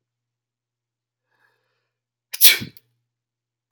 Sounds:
Sneeze